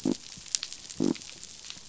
{"label": "biophony", "recorder": "SoundTrap 500"}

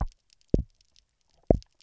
{"label": "biophony, double pulse", "recorder": "SoundTrap 300"}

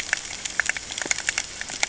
{"label": "ambient", "recorder": "HydroMoth"}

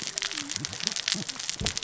{"label": "biophony, cascading saw", "recorder": "SoundTrap 600 or HydroMoth"}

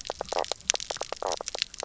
{"label": "biophony, knock croak", "recorder": "SoundTrap 300"}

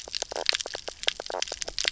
{"label": "biophony, knock croak", "recorder": "SoundTrap 300"}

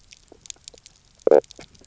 {"label": "biophony, knock croak", "recorder": "SoundTrap 300"}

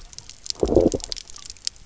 {"label": "biophony, low growl", "recorder": "SoundTrap 300"}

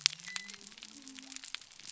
{"label": "biophony", "recorder": "SoundTrap 300"}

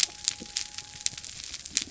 {"label": "biophony", "recorder": "SoundTrap 300"}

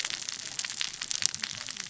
{"label": "biophony, cascading saw", "recorder": "SoundTrap 600 or HydroMoth"}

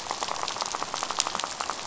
{"label": "biophony, rattle", "recorder": "SoundTrap 500"}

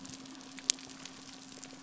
{"label": "biophony", "recorder": "SoundTrap 300"}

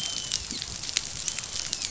{"label": "biophony, dolphin", "recorder": "SoundTrap 500"}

